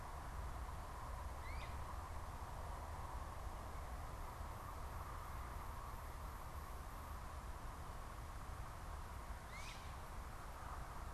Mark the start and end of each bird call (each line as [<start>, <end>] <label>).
[1.30, 1.80] Great Crested Flycatcher (Myiarchus crinitus)
[9.30, 9.80] Great Crested Flycatcher (Myiarchus crinitus)